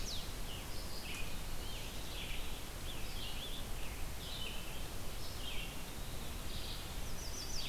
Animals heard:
Scarlet Tanager (Piranga olivacea), Chestnut-sided Warbler (Setophaga pensylvanica), Red-eyed Vireo (Vireo olivaceus)

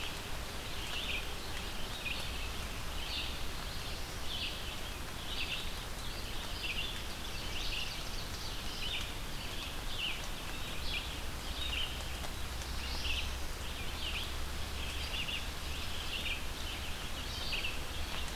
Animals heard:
Ovenbird (Seiurus aurocapilla), Red-eyed Vireo (Vireo olivaceus), Black-throated Blue Warbler (Setophaga caerulescens)

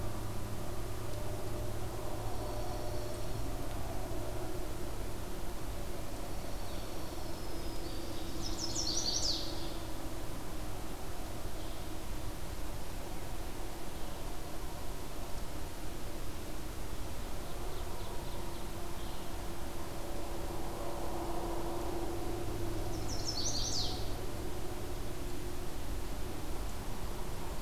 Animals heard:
Black-throated Green Warbler (Setophaga virens), Chestnut-sided Warbler (Setophaga pensylvanica), Ovenbird (Seiurus aurocapilla), Dark-eyed Junco (Junco hyemalis)

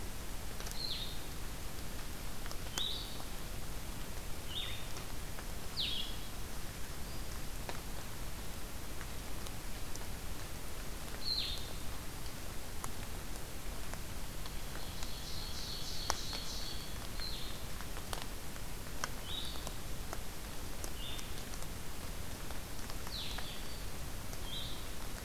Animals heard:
Blue-headed Vireo (Vireo solitarius), Black-throated Green Warbler (Setophaga virens), Ovenbird (Seiurus aurocapilla)

